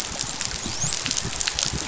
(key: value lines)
label: biophony, dolphin
recorder: SoundTrap 500